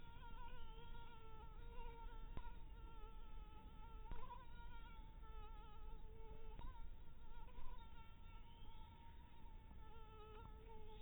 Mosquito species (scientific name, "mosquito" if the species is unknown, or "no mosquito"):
mosquito